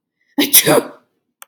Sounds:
Sneeze